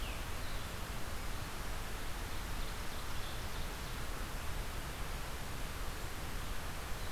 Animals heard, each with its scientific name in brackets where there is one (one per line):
Red-eyed Vireo (Vireo olivaceus)